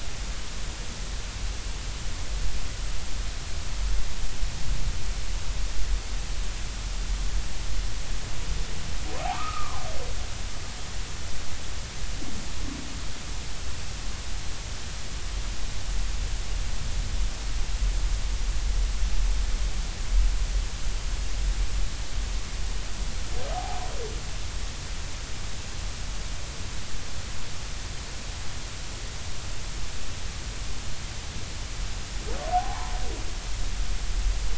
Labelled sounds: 9.3	9.8	humpback whale, 0.96 to 1.4 kHz
23.5	23.8	humpback whale, 0.80 to 0.90 kHz
32.5	32.9	humpback whale, 0.80 to 1.1 kHz

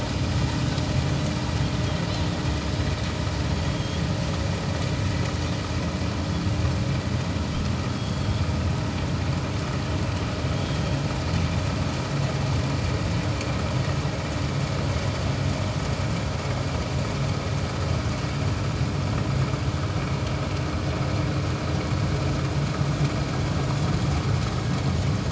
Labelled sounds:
3.6	4.0	Pacific white-sided dolphin, 3.2 to 3.4 kHz
7.9	8.4	Pacific white-sided dolphin, 3.2 to 3.4 kHz

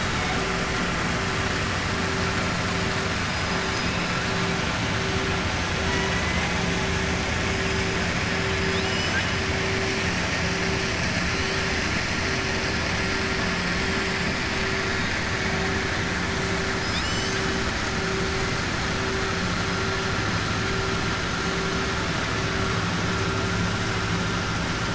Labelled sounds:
8.6	9.3	killer whale, southern resident, 1.6 to 7.5 kHz

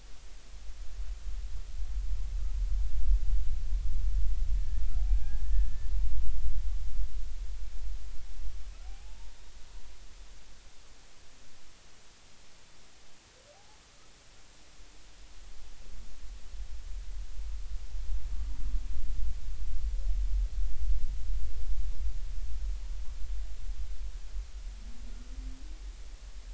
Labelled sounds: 4.6	5.9	humpback whale, 0.80 to 1.9 kHz
8.8	9.3	humpback whale, 0.80 to 0.99 kHz
13.5	13.8	humpback whale, 0.80 to 0.90 kHz

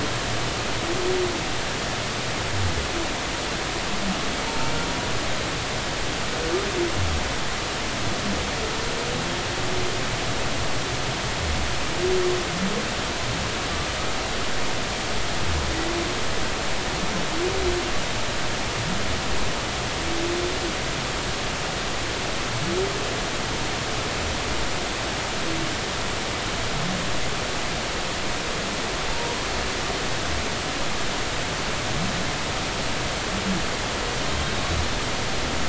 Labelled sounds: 4.5	4.7	humpback whale, 0.86 to 0.96 kHz
29.1	29.5	humpback whale, 0.86 to 1.1 kHz

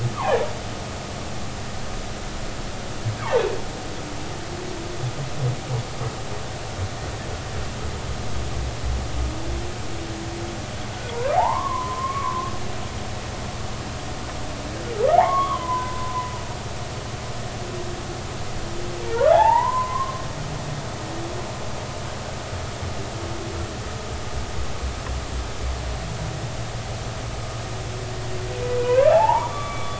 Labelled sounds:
0.2	0.4	humpback whale, 0.80 to 1.3 kHz
11.1	12.5	humpback whale, 0.80 to 1.2 kHz
15.2	16.3	humpback whale, 0.80 to 1.3 kHz
19.1	19.7	humpback whale, 0.86 to 2.0 kHz
20.3	21.2	humpback whale, 0.80 to 1.2 kHz
28.8	29.9	humpback whale, 0.80 to 3.5 kHz

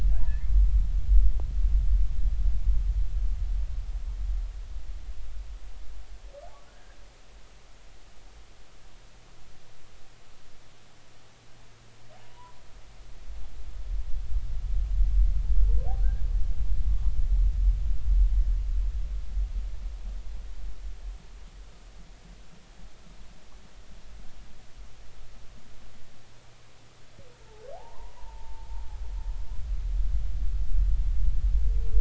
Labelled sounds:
0.3	0.5	humpback whale, 1.7 to 2.3 kHz
12.2	12.6	humpback whale, 0.86 to 1.1 kHz
27.7	28.7	humpback whale, 0.80 to 1.1 kHz

